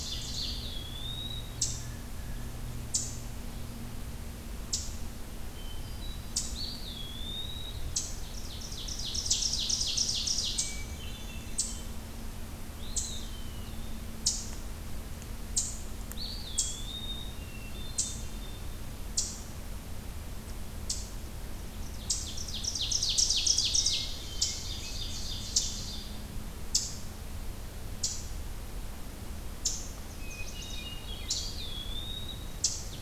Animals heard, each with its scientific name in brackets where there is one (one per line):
Chestnut-sided Warbler (Setophaga pensylvanica)
Eastern Wood-Pewee (Contopus virens)
Eastern Chipmunk (Tamias striatus)
Hermit Thrush (Catharus guttatus)
Ovenbird (Seiurus aurocapilla)